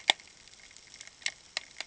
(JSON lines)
{"label": "ambient", "recorder": "HydroMoth"}